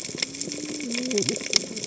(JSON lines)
{"label": "biophony, cascading saw", "recorder": "HydroMoth"}